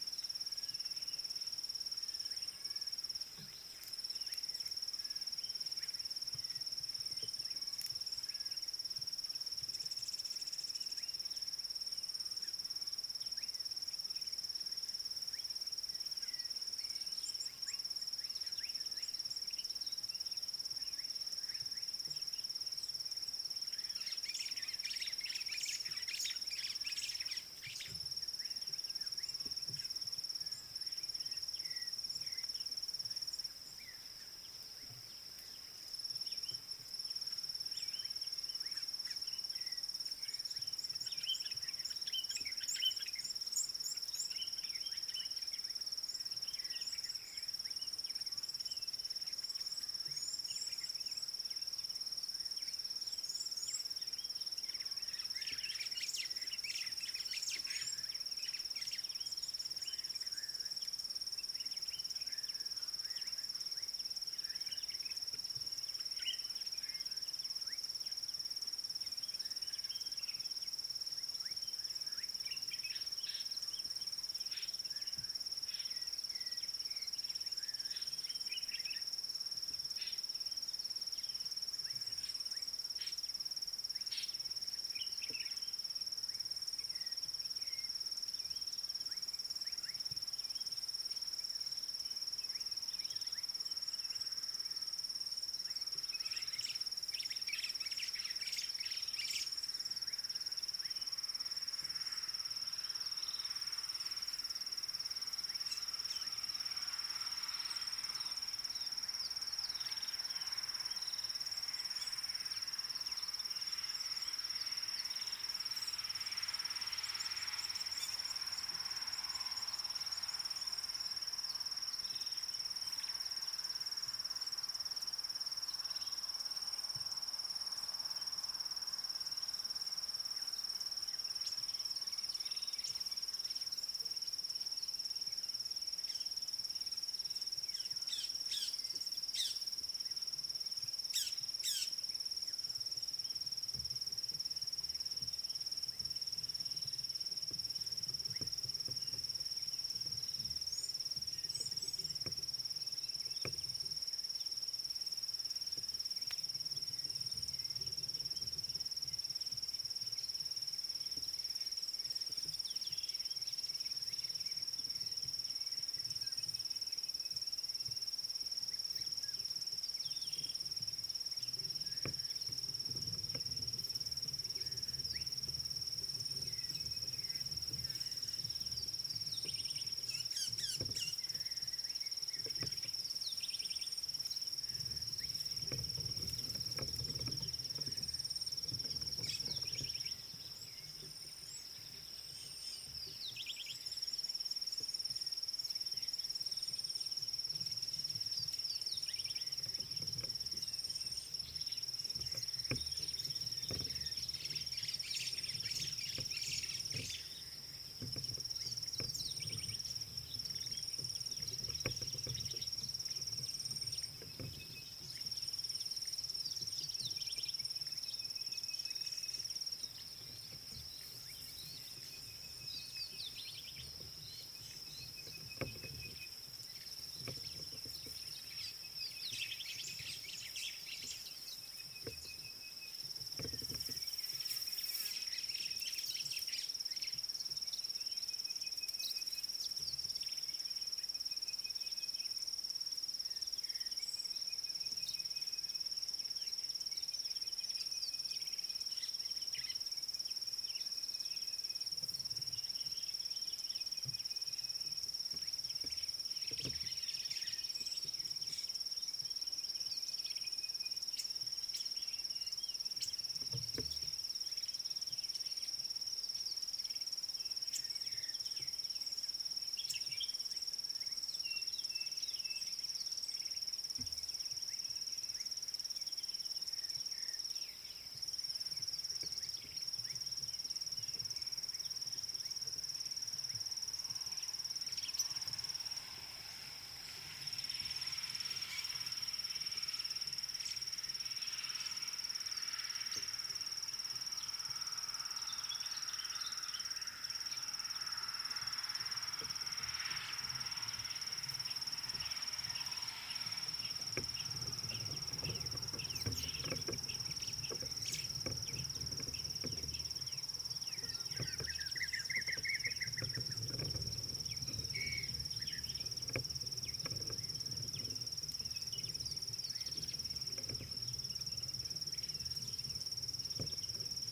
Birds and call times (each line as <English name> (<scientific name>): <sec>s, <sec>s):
Red-cheeked Cordonbleu (Uraeginthus bengalus): 17.4s, 43.6s, 50.5s, 53.7s, 117.6s, 151.6s
White-browed Sparrow-Weaver (Plocepasser mahali): 25.7s, 56.8s, 98.0s, 206.4s, 230.3s, 235.9s, 249.6s, 257.2s
African Bare-eyed Thrush (Turdus tephronotus): 31.7s
Common Bulbul (Pycnonotus barbatus): 42.2s, 66.2s, 85.3s
Rattling Cisticola (Cisticola chiniana): 103.3s, 126.0s, 183.7s, 193.4s, 198.7s, 223.4s, 319.9s
White-rumped Shrike (Eurocephalus ruppelli): 141.7s, 180.6s
Sulphur-breasted Bushshrike (Telophorus sulfureopectus): 218.7s, 225.5s, 229.0s, 232.1s, 238.8s, 245.0s, 254.2s, 260.6s
Black Cuckoo (Cuculus clamosus): 312.5s